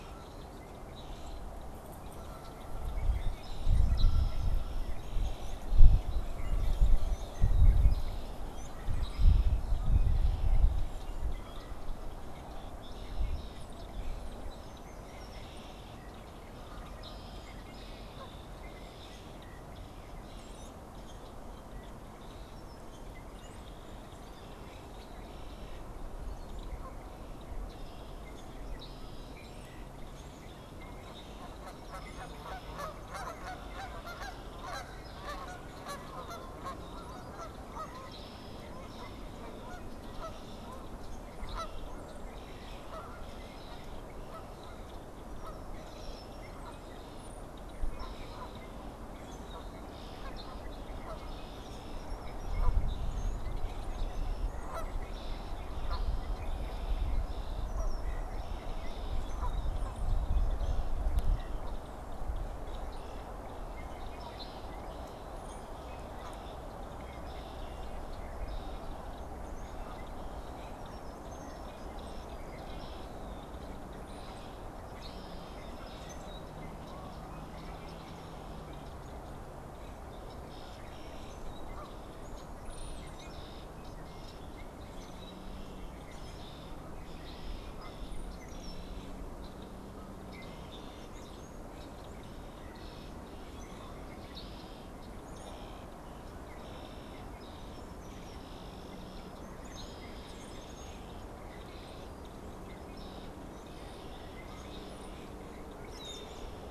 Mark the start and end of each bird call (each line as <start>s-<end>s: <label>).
0.0s-106.7s: Red-winged Blackbird (Agelaius phoeniceus)
8.5s-9.6s: unidentified bird
20.3s-20.9s: Brown-headed Cowbird (Molothrus ater)
30.7s-49.7s: Canada Goose (Branta canadensis)
47.1s-47.6s: Brown-headed Cowbird (Molothrus ater)
65.3s-65.7s: Brown-headed Cowbird (Molothrus ater)
82.6s-83.3s: Brown-headed Cowbird (Molothrus ater)